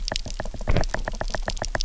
{"label": "biophony, knock", "recorder": "SoundTrap 300"}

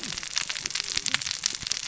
{"label": "biophony, cascading saw", "recorder": "SoundTrap 600 or HydroMoth"}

